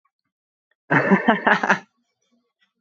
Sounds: Laughter